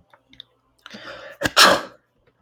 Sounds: Sneeze